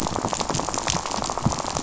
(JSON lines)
{"label": "biophony, rattle", "recorder": "SoundTrap 500"}